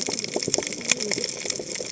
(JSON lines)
{"label": "biophony, cascading saw", "recorder": "HydroMoth"}